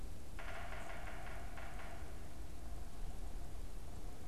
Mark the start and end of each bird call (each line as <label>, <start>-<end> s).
Yellow-bellied Sapsucker (Sphyrapicus varius), 0.2-2.3 s